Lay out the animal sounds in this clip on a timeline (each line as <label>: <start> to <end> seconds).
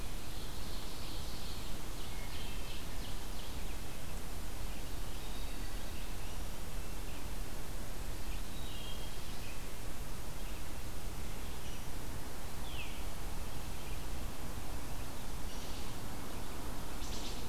Ovenbird (Seiurus aurocapilla): 0.0 to 3.7 seconds
Wood Thrush (Hylocichla mustelina): 1.9 to 2.8 seconds
Wood Thrush (Hylocichla mustelina): 5.2 to 6.1 seconds
Wood Thrush (Hylocichla mustelina): 8.5 to 9.3 seconds
Veery (Catharus fuscescens): 12.5 to 13.1 seconds
Wood Thrush (Hylocichla mustelina): 15.4 to 15.8 seconds
Wood Thrush (Hylocichla mustelina): 16.9 to 17.5 seconds